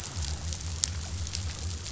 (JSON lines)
{"label": "biophony", "recorder": "SoundTrap 500"}